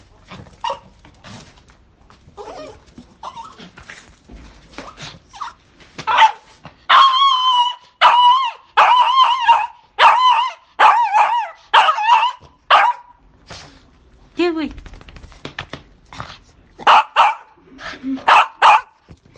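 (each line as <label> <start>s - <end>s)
A dog is whimpering softly. 2.2s - 5.6s
A dog barks loudly and repeatedly. 5.9s - 13.1s
A woman speaks quickly with a sharp tone. 14.4s - 15.2s
A dog running closer on the floor. 15.4s - 16.4s
A dog barks loudly. 16.8s - 18.9s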